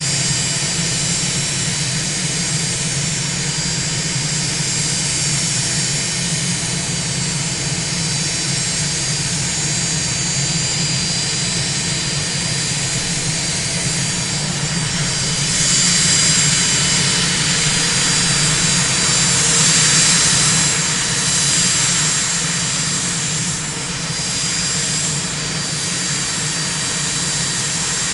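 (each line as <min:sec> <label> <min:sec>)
0:00.0 A loud airplane engine during takeoff. 0:28.1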